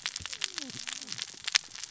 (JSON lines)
{"label": "biophony, cascading saw", "recorder": "SoundTrap 600 or HydroMoth"}